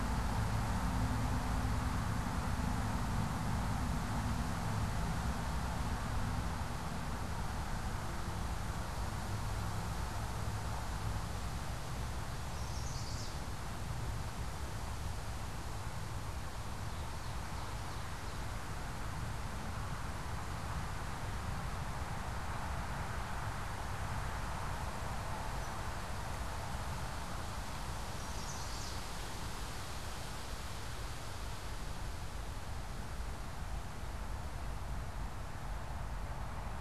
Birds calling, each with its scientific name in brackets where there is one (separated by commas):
Chestnut-sided Warbler (Setophaga pensylvanica), Ovenbird (Seiurus aurocapilla)